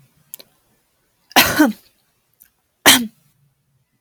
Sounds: Cough